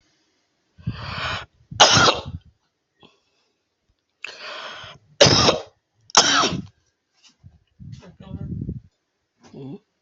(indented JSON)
{
  "expert_labels": [
    {
      "quality": "ok",
      "cough_type": "wet",
      "dyspnea": false,
      "wheezing": false,
      "stridor": false,
      "choking": false,
      "congestion": false,
      "nothing": true,
      "diagnosis": "lower respiratory tract infection",
      "severity": "mild"
    }
  ]
}